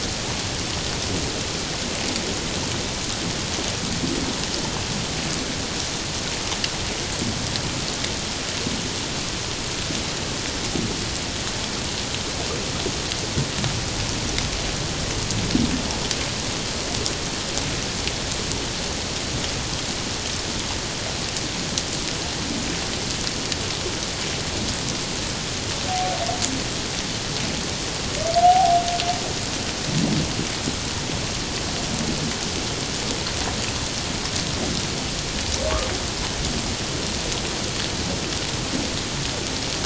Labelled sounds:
28.4	28.8	humpback whale, 0.78 to 0.84 kHz

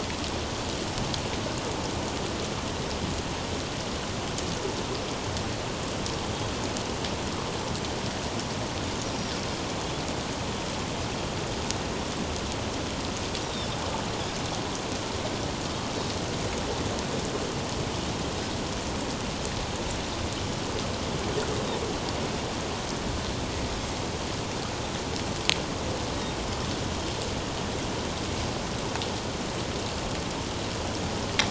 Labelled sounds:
9.0	9.3	Pacific white-sided dolphin, 5.6 to 5.8 kHz
13.4	13.7	Pacific white-sided dolphin, 3.4 to 3.9 kHz

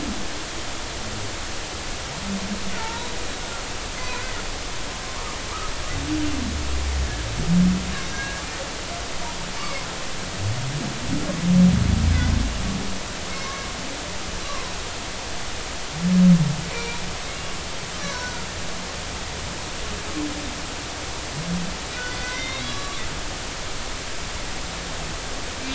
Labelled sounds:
2.8	3.1	humpback whale, 0.83 to 1.0 kHz
4.0	4.2	humpback whale, 0.93 to 1.1 kHz
8.1	8.4	humpback whale, 1.6 to 1.7 kHz
9.6	9.8	humpback whale, 2.0 to 2.3 kHz
16.7	17.0	humpback whale, 0.90 to 2.4 kHz
18.1	18.5	humpback whale, 1.3 to 1.5 kHz
22.1	23.0	humpback whale, 1.1 to 4.0 kHz

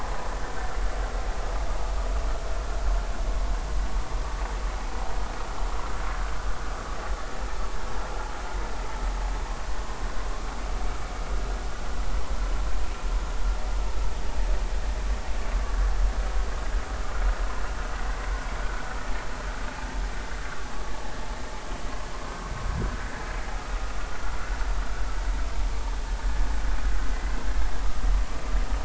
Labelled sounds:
26.2	26.5	vessel noise, 1.7 to 1.8 kHz

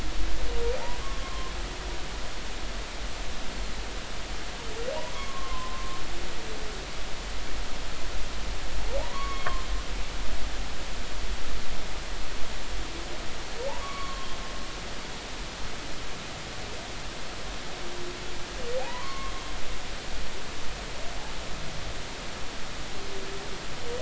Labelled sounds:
1.0	1.5	humpback whale, 0.99 to 1.2 kHz
5.1	6.0	humpback whale, 0.96 to 1.2 kHz
9.0	9.6	humpback whale, 0.80 to 3.3 kHz
13.8	14.3	humpback whale, 1.0 to 1.2 kHz
18.8	19.3	humpback whale, 0.80 to 2.3 kHz

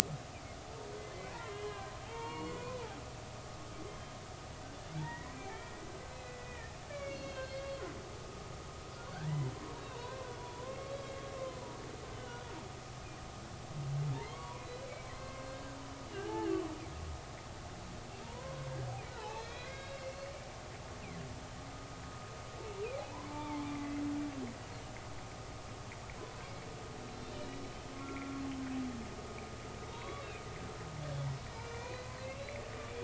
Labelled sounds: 1.0	2.6	humpback whale, 0.80 to 4.4 kHz
5.0	7.7	humpback whale, 0.83 to 4.5 kHz
9.1	11.8	humpback whale, 0.86 to 3.9 kHz
12.1	12.5	humpback whale, 1.3 to 3.1 kHz
14.1	15.8	humpback whale, 0.86 to 4.3 kHz
16.1	16.5	humpback whale, 0.80 to 1.8 kHz
18.2	18.7	humpback whale, 0.90 to 1.1 kHz
19.2	20.3	humpback whale, 0.80 to 4.9 kHz
23.3	24.0	humpback whale, 0.83 to 2.4 kHz
27.0	27.6	humpback whale, 2.8 to 4.2 kHz
28.0	28.4	humpback whale, 1.3 to 1.4 kHz
29.9	30.2	humpback whale, 0.86 to 3.9 kHz
31.5	32.6	humpback whale, 0.93 to 2.8 kHz

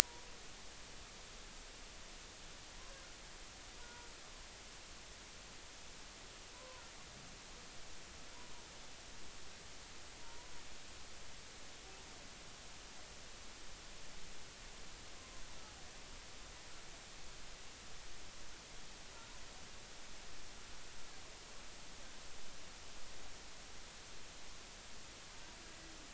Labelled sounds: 3.8	4.1	humpback whale, 0.86 to 1.5 kHz
6.5	6.8	humpback whale, 0.90 to 1.1 kHz
10.2	10.5	humpback whale, 0.90 to 1.1 kHz
15.2	15.4	humpback whale, 0.99 to 1.1 kHz

